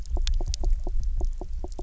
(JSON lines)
{"label": "biophony, knock croak", "recorder": "SoundTrap 300"}